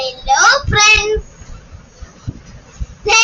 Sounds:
Throat clearing